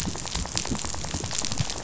{"label": "biophony, rattle", "recorder": "SoundTrap 500"}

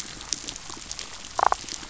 {"label": "biophony, damselfish", "recorder": "SoundTrap 500"}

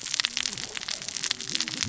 {"label": "biophony, cascading saw", "recorder": "SoundTrap 600 or HydroMoth"}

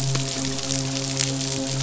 {"label": "biophony, midshipman", "recorder": "SoundTrap 500"}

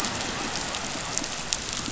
{"label": "biophony", "recorder": "SoundTrap 500"}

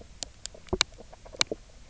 {"label": "biophony, knock croak", "recorder": "SoundTrap 300"}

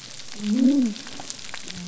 {"label": "biophony", "recorder": "SoundTrap 300"}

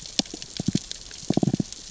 {"label": "biophony, knock", "recorder": "SoundTrap 600 or HydroMoth"}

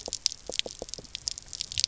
{"label": "biophony, pulse", "recorder": "SoundTrap 300"}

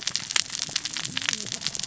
{"label": "biophony, cascading saw", "recorder": "SoundTrap 600 or HydroMoth"}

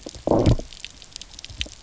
{"label": "biophony, low growl", "recorder": "SoundTrap 300"}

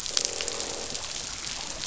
{"label": "biophony, croak", "recorder": "SoundTrap 500"}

